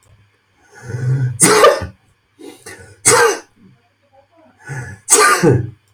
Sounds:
Sneeze